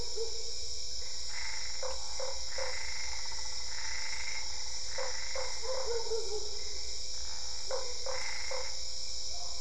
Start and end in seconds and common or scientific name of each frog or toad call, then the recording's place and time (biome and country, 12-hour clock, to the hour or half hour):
1.2	5.7	Boana albopunctata
1.7	2.8	Usina tree frog
4.9	6.0	Usina tree frog
7.6	8.7	Usina tree frog
8.1	9.0	Boana albopunctata
Cerrado, Brazil, ~8pm